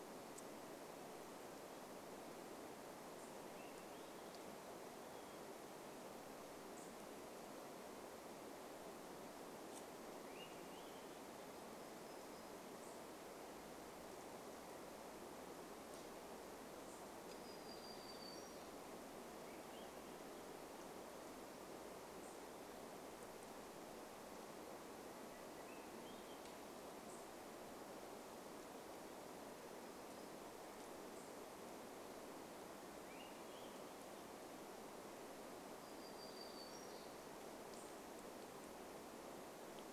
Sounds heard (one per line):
Swainson's Thrush song
Hermit Thrush song
warbler song
unidentified bird chip note